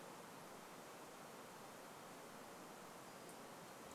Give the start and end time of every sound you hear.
2s-4s: unidentified sound

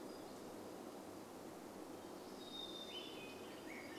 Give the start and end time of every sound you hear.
0s-2s: warbler song
0s-4s: vehicle engine
2s-4s: Hermit Thrush song
2s-4s: Swainson's Thrush song

